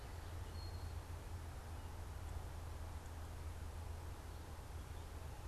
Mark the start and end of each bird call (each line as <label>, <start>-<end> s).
Eastern Towhee (Pipilo erythrophthalmus), 0.3-2.0 s